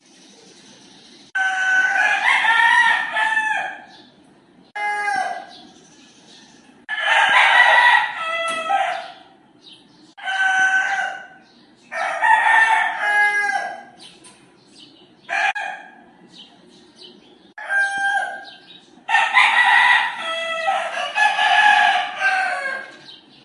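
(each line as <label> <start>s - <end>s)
A rooster crows loudly. 1.3s - 4.0s
A rooster crows loudly. 6.8s - 9.4s
A rooster crows loudly. 10.2s - 14.1s
A rooster crows loudly. 17.5s - 23.4s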